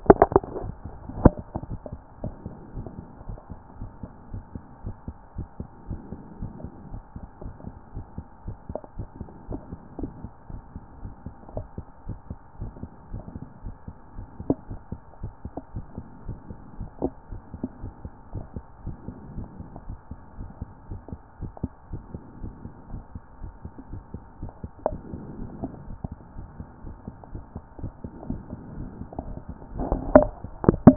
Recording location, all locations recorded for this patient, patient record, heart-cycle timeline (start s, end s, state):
pulmonary valve (PV)
pulmonary valve (PV)+tricuspid valve (TV)+mitral valve (MV)
#Age: nan
#Sex: Female
#Height: nan
#Weight: nan
#Pregnancy status: True
#Murmur: Absent
#Murmur locations: nan
#Most audible location: nan
#Systolic murmur timing: nan
#Systolic murmur shape: nan
#Systolic murmur grading: nan
#Systolic murmur pitch: nan
#Systolic murmur quality: nan
#Diastolic murmur timing: nan
#Diastolic murmur shape: nan
#Diastolic murmur grading: nan
#Diastolic murmur pitch: nan
#Diastolic murmur quality: nan
#Outcome: Normal
#Campaign: 2014 screening campaign
0.00	2.08	unannotated
2.08	2.22	diastole
2.22	2.34	S1
2.34	2.46	systole
2.46	2.54	S2
2.54	2.76	diastole
2.76	2.86	S1
2.86	2.98	systole
2.98	3.06	S2
3.06	3.26	diastole
3.26	3.38	S1
3.38	3.50	systole
3.50	3.60	S2
3.60	3.78	diastole
3.78	3.90	S1
3.90	4.02	systole
4.02	4.12	S2
4.12	4.32	diastole
4.32	4.42	S1
4.42	4.54	systole
4.54	4.64	S2
4.64	4.84	diastole
4.84	4.96	S1
4.96	5.06	systole
5.06	5.16	S2
5.16	5.36	diastole
5.36	5.48	S1
5.48	5.60	systole
5.60	5.68	S2
5.68	5.88	diastole
5.88	6.00	S1
6.00	6.12	systole
6.12	6.20	S2
6.20	6.40	diastole
6.40	6.52	S1
6.52	6.62	systole
6.62	6.72	S2
6.72	6.90	diastole
6.90	7.02	S1
7.02	7.16	systole
7.16	7.26	S2
7.26	7.42	diastole
7.42	7.54	S1
7.54	7.66	systole
7.66	7.76	S2
7.76	7.94	diastole
7.94	8.06	S1
8.06	8.16	systole
8.16	8.26	S2
8.26	8.46	diastole
8.46	8.56	S1
8.56	8.70	systole
8.70	8.78	S2
8.78	8.96	diastole
8.96	9.08	S1
9.08	9.20	systole
9.20	9.28	S2
9.28	9.50	diastole
9.50	9.60	S1
9.60	9.70	systole
9.70	9.80	S2
9.80	9.98	diastole
9.98	10.12	S1
10.12	10.22	systole
10.22	10.32	S2
10.32	10.50	diastole
10.50	10.62	S1
10.62	10.74	systole
10.74	10.82	S2
10.82	11.02	diastole
11.02	11.12	S1
11.12	11.26	systole
11.26	11.34	S2
11.34	11.54	diastole
11.54	11.66	S1
11.66	11.78	systole
11.78	11.86	S2
11.86	12.06	diastole
12.06	12.18	S1
12.18	12.30	systole
12.30	12.38	S2
12.38	12.60	diastole
12.60	12.72	S1
12.72	12.82	systole
12.82	12.90	S2
12.90	13.12	diastole
13.12	13.22	S1
13.22	13.34	systole
13.34	13.44	S2
13.44	13.64	diastole
13.64	13.74	S1
13.74	13.88	systole
13.88	13.96	S2
13.96	14.16	diastole
14.16	14.28	S1
14.28	14.46	systole
14.46	14.56	S2
14.56	14.70	diastole
14.70	14.80	S1
14.80	14.92	systole
14.92	15.00	S2
15.00	15.22	diastole
15.22	30.96	unannotated